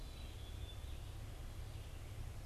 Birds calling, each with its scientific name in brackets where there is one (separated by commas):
Red-eyed Vireo (Vireo olivaceus), Black-capped Chickadee (Poecile atricapillus)